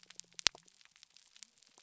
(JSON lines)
{"label": "biophony", "recorder": "SoundTrap 300"}